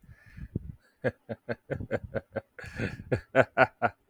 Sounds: Laughter